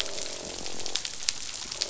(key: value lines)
label: biophony, croak
recorder: SoundTrap 500